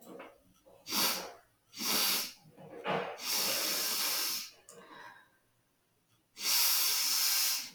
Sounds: Sniff